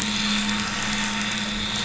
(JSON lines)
{"label": "anthrophony, boat engine", "recorder": "SoundTrap 500"}